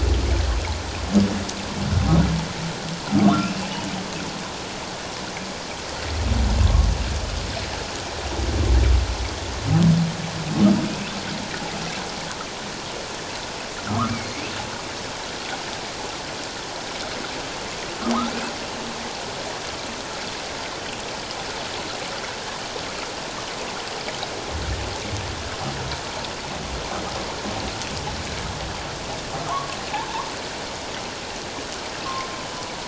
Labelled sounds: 3.2	3.7	humpback whale, 1.0 to 2.8 kHz
6.6	6.9	humpback whale, 1.0 to 1.2 kHz
10.9	11.1	humpback whale, 2.4 to 2.8 kHz
13.9	14.5	humpback whale, 1.0 to 2.4 kHz
18.0	18.3	humpback whale, 0.97 to 1.4 kHz
29.5	29.8	humpback whale, 0.94 to 1.2 kHz
32.0	32.3	humpback whale, 1.0 to 1.2 kHz

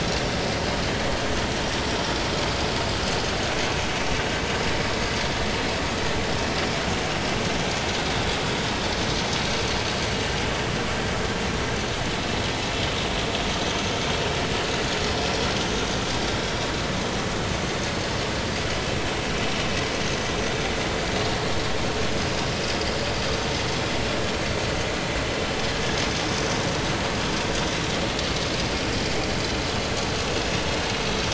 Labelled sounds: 30.9	31.2	vessel noise, 6.0 to 6.2 kHz

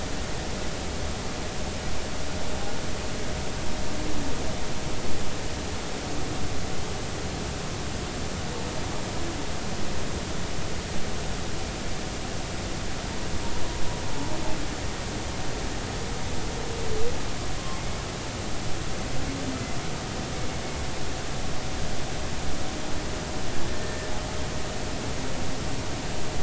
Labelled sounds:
17.8	18.0	humpback whale, 2.0 to 2.2 kHz
23.7	24.1	humpback whale, 1.7 to 1.9 kHz

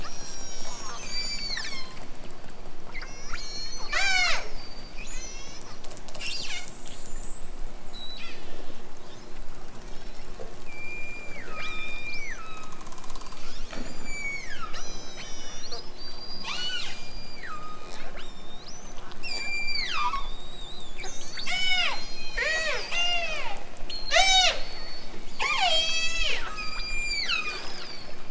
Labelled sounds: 0.0	2.1	killer whale, southern Alaska resident, 0.60 to 8.0 kHz
2.8	5.8	killer whale, southern Alaska resident, 0.23 to 8.0 kHz
7.7	8.9	killer whale, southern Alaska resident, 0.92 to 8.0 kHz
9.7	12.8	killer whale, southern Alaska resident, 0.87 to 8.0 kHz
13.8	19.0	killer whale, southern Alaska resident, 0.69 to 8.0 kHz
19.2	23.7	killer whale, southern Alaska resident, 0.18 to 8.0 kHz
23.9	25.1	killer whale, southern Alaska resident, 0.32 to 8.0 kHz
25.3	28.2	killer whale, southern Alaska resident, 0.37 to 8.0 kHz

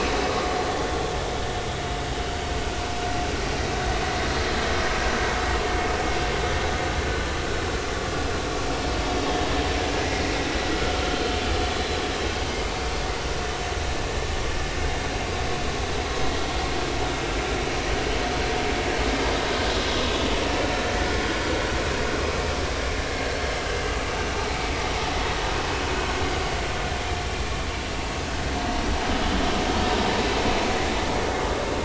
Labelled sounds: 10.0	10.3	vessel noise, 1.9 to 2.2 kHz
12.3	12.6	vessel noise, 4.7 to 4.8 kHz
29.9	30.1	vessel noise, 3.7 to 4.0 kHz

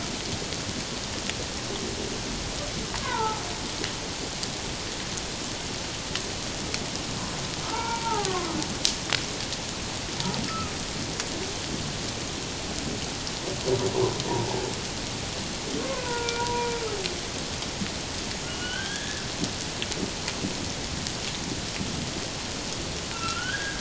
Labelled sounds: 3.0	3.4	humpback whale, 0.81 to 1.6 kHz
7.6	8.5	humpback whale, 0.78 to 2.4 kHz
10.5	10.7	humpback whale, 1.2 to 1.4 kHz
15.9	16.7	humpback whale, 0.88 to 2.4 kHz
18.5	19.2	humpback whale, 1.4 to 3.6 kHz
23.1	23.8	humpback whale, 1.2 to 2.8 kHz

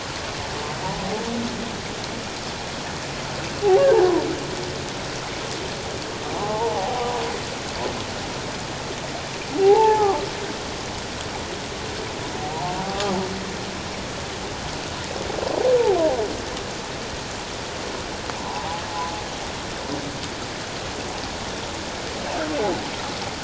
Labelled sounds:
6.3	7.2	humpback whale, 0.78 to 1.1 kHz
9.6	10.2	humpback whale, 0.78 to 0.94 kHz
12.4	13.1	humpback whale, 0.78 to 1.3 kHz
18.4	18.8	humpback whale, 0.78 to 1.1 kHz

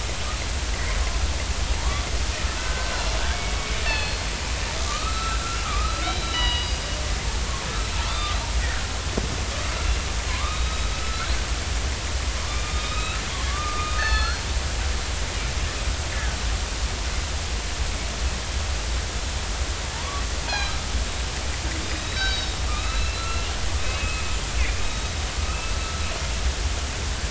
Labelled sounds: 1.8	2.1	killer whale, northern resident, 0.86 to 1.2 kHz
2.6	3.0	killer whale, northern resident, 1.4 to 1.6 kHz
3.8	4.2	killer whale, northern resident, 1.7 to 4.5 kHz
4.8	6.9	killer whale, northern resident, 0.93 to 7.6 kHz
8.1	8.3	killer whale, northern resident, 3.4 to 3.6 kHz
10.3	11.3	killer whale, northern resident, 0.96 to 3.9 kHz
12.5	13.2	killer whale, northern resident, 1.2 to 4.0 kHz
13.5	14.5	killer whale, northern resident, 1.1 to 4.5 kHz
20.5	20.8	killer whale, northern resident, 0.80 to 4.3 kHz
21.8	23.1	killer whale, northern resident, 1.2 to 5.5 kHz
23.8	24.2	killer whale, northern resident, 2.5 to 2.6 kHz
24.8	25.7	killer whale, northern resident, 2.6 to 3.8 kHz

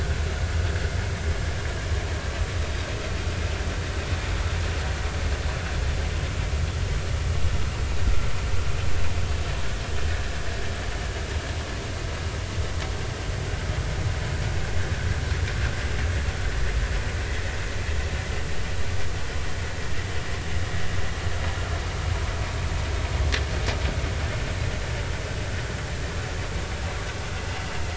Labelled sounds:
10.1	10.4	vessel noise, 1.6 to 1.9 kHz
27.5	27.7	vessel noise, 2.7 to 2.9 kHz

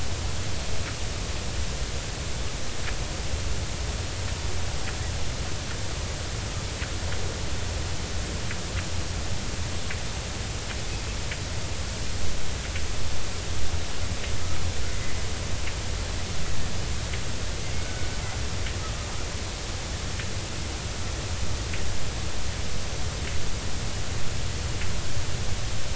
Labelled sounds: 17.8	18.1	killer whale, Bigg's (transient), 1.4 to 1.6 kHz

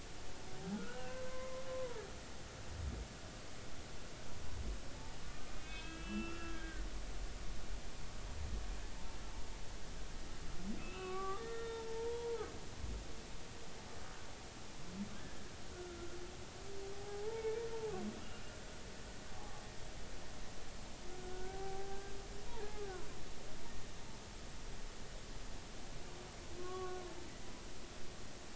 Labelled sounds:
0.8	1.6	humpback whale, 0.99 to 2.9 kHz
5.5	6.8	humpback whale, 1.2 to 3.4 kHz
10.8	12.5	humpback whale, 0.80 to 3.7 kHz
15.1	16.0	humpback whale, 1.3 to 1.8 kHz
16.9	17.6	humpback whale, 0.80 to 0.96 kHz
19.3	19.6	humpback whale, 0.80 to 0.99 kHz
21.2	22.1	humpback whale, 0.80 to 1.7 kHz
26.6	27.0	humpback whale, 1.0 to 1.2 kHz

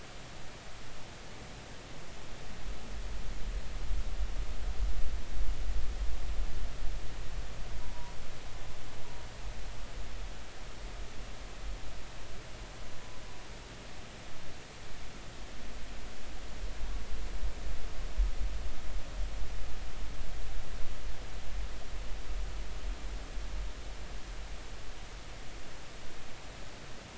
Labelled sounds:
7.8	8.1	humpback whale, 0.86 to 1.0 kHz

